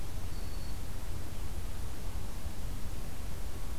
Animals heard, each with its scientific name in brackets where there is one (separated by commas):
Black-throated Green Warbler (Setophaga virens)